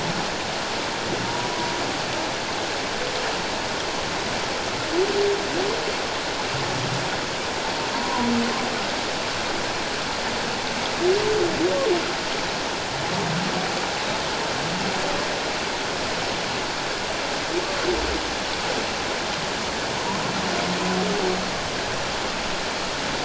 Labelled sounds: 1.2	1.5	humpback whale, 0.91 to 1.0 kHz
7.9	8.3	humpback whale, 0.91 to 1.1 kHz

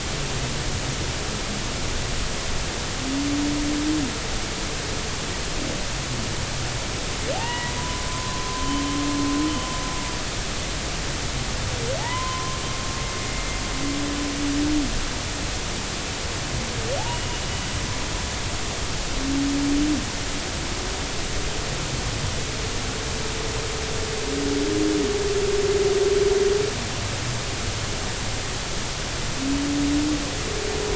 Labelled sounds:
7.3	8.8	humpback whale, 0.80 to 2.0 kHz
12.0	12.6	humpback whale, 0.80 to 1.1 kHz
17.1	17.3	humpback whale, 2.8 to 3.0 kHz

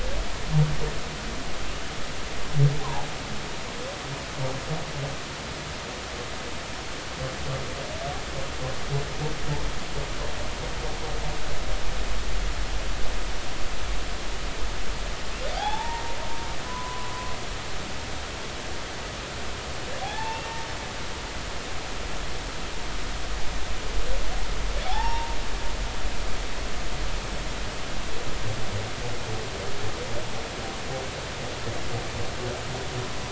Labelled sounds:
2.8	3.1	humpback whale, 0.80 to 1.1 kHz
15.5	16.2	humpback whale, 0.80 to 3.6 kHz
16.6	17.1	humpback whale, 0.96 to 1.1 kHz
20.0	20.5	humpback whale, 0.80 to 2.8 kHz
24.8	25.4	humpback whale, 0.80 to 0.99 kHz

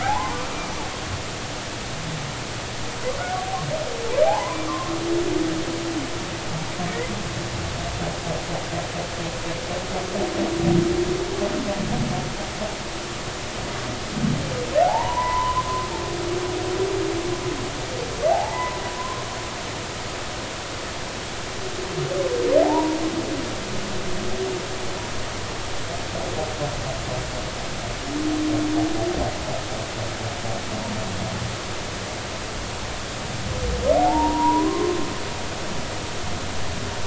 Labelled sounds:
0.0	0.4	humpback whale, 0.80 to 1.1 kHz
4.2	4.9	humpback whale, 0.80 to 1.2 kHz
14.8	15.7	humpback whale, 0.80 to 1.1 kHz
18.3	19.3	humpback whale, 0.80 to 2.1 kHz
22.6	23.0	humpback whale, 0.80 to 1.0 kHz
34.0	35.0	humpback whale, 0.80 to 1.2 kHz

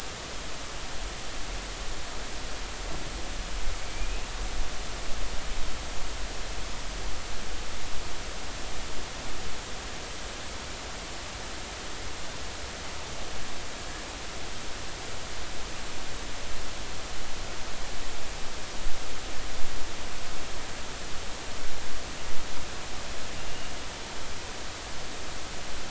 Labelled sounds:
3.7	4.3	killer whale, Bigg's (transient), 2.2 to 2.8 kHz

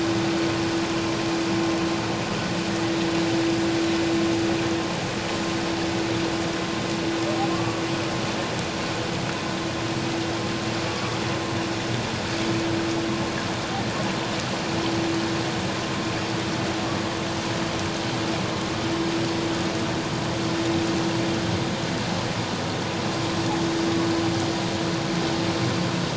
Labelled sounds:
7.5	7.8	humpback whale, 1.0 to 1.2 kHz
10.8	11.2	humpback whale, 1.1 to 1.3 kHz

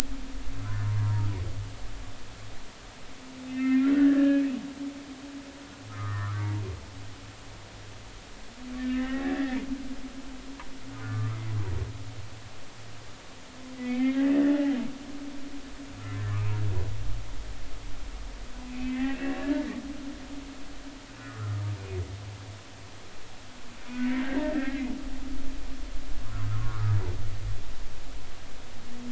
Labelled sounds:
1.0	1.3	humpback whale, 0.90 to 1.1 kHz
3.5	4.5	humpback whale, 1.6 to 2.7 kHz
5.9	6.5	humpback whale, 0.96 to 1.4 kHz
8.8	9.6	humpback whale, 1.6 to 2.1 kHz
10.9	11.3	humpback whale, 1.1 to 1.3 kHz
13.8	14.8	humpback whale, 0.80 to 3.3 kHz
18.7	19.7	humpback whale, 1.6 to 2.8 kHz
21.2	21.6	humpback whale, 1.2 to 1.5 kHz
24.1	24.9	humpback whale, 1.5 to 2.2 kHz
26.5	27.0	humpback whale, 0.96 to 1.5 kHz

